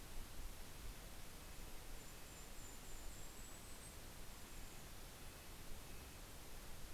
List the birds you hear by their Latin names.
Sitta canadensis, Regulus satrapa